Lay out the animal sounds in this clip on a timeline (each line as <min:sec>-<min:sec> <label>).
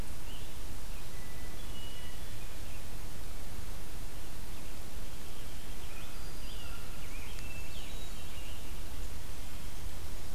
0:00.0-0:01.1 Scarlet Tanager (Piranga olivacea)
0:01.1-0:02.6 Hermit Thrush (Catharus guttatus)
0:05.5-0:08.8 Scarlet Tanager (Piranga olivacea)
0:05.7-0:06.9 Black-throated Green Warbler (Setophaga virens)
0:05.8-0:06.9 American Crow (Corvus brachyrhynchos)
0:07.0-0:08.5 Hermit Thrush (Catharus guttatus)